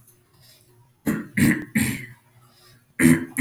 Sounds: Throat clearing